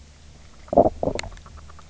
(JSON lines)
{"label": "biophony, knock croak", "recorder": "SoundTrap 300"}